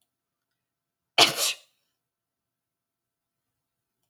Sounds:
Sneeze